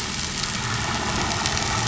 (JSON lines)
{"label": "anthrophony, boat engine", "recorder": "SoundTrap 500"}